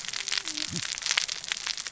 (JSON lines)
{"label": "biophony, cascading saw", "recorder": "SoundTrap 600 or HydroMoth"}